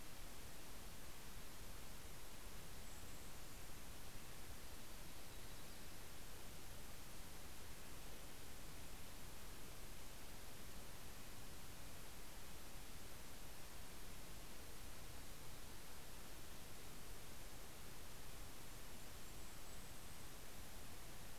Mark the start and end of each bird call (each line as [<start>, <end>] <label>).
[0.00, 13.69] Red-breasted Nuthatch (Sitta canadensis)
[1.99, 4.39] Golden-crowned Kinglet (Regulus satrapa)
[18.19, 21.29] Golden-crowned Kinglet (Regulus satrapa)